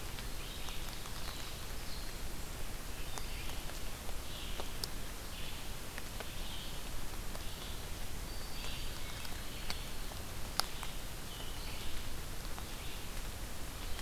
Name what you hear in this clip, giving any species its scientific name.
Vireo olivaceus, Setophaga virens, Contopus virens